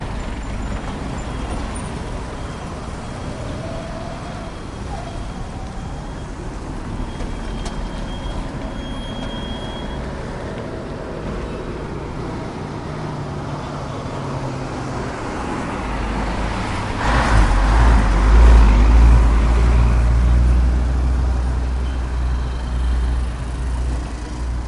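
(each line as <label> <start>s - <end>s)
Windy street with slow-moving traffic and gentle, intermittent engine sounds. 0.0s - 12.8s
A sharp metallic squeal sounds briefly. 7.7s - 10.2s
An older motorcycle approaches and then leaves on a street, with its engine running slowly and steadily. 12.3s - 24.6s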